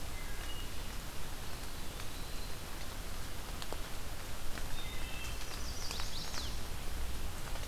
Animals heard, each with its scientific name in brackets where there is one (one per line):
Chestnut-sided Warbler (Setophaga pensylvanica)
Eastern Wood-Pewee (Contopus virens)
Wood Thrush (Hylocichla mustelina)